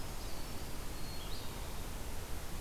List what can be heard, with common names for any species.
Brown Creeper, Red-eyed Vireo, Black-capped Chickadee